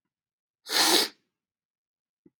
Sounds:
Sniff